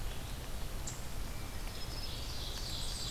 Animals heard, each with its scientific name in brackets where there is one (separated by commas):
Black-and-white Warbler (Mniotilta varia), Ovenbird (Seiurus aurocapilla), Dark-eyed Junco (Junco hyemalis)